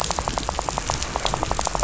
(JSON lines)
{"label": "biophony, rattle", "recorder": "SoundTrap 500"}